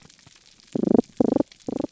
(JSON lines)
{"label": "biophony", "recorder": "SoundTrap 300"}